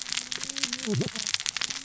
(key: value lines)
label: biophony, cascading saw
recorder: SoundTrap 600 or HydroMoth